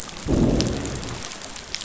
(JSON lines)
{"label": "biophony, growl", "recorder": "SoundTrap 500"}